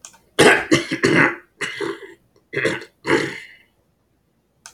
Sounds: Throat clearing